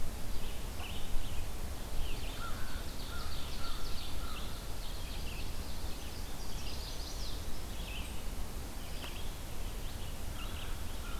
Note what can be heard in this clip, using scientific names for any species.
Vireo olivaceus, Corvus brachyrhynchos, Seiurus aurocapilla, Setophaga pensylvanica